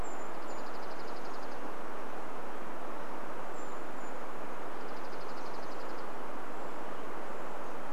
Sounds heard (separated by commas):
Dark-eyed Junco song, Brown Creeper call